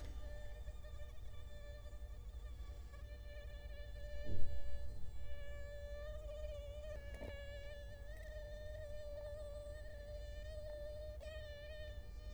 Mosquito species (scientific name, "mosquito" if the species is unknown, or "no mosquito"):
Culex quinquefasciatus